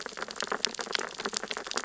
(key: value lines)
label: biophony, sea urchins (Echinidae)
recorder: SoundTrap 600 or HydroMoth